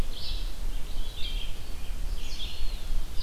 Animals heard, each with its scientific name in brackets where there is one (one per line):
Red-eyed Vireo (Vireo olivaceus)
Eastern Wood-Pewee (Contopus virens)